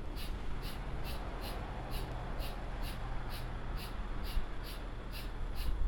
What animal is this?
Pterophylla camellifolia, an orthopteran